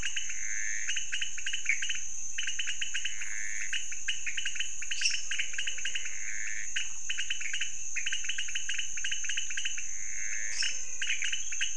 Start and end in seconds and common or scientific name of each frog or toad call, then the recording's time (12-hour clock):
0.0	11.7	pointedbelly frog
0.0	11.7	Pithecopus azureus
4.7	6.6	menwig frog
4.9	5.4	lesser tree frog
9.9	11.5	menwig frog
10.4	11.0	lesser tree frog
1:30am